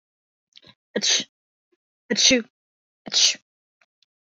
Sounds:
Sneeze